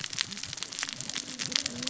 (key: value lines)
label: biophony, cascading saw
recorder: SoundTrap 600 or HydroMoth